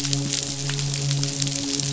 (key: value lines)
label: biophony, midshipman
recorder: SoundTrap 500